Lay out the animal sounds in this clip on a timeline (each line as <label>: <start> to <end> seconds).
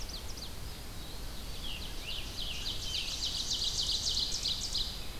Ovenbird (Seiurus aurocapilla): 0.0 to 4.9 seconds
Eastern Wood-Pewee (Contopus virens): 0.5 to 1.6 seconds
Scarlet Tanager (Piranga olivacea): 1.5 to 3.7 seconds
Blackburnian Warbler (Setophaga fusca): 2.7 to 4.2 seconds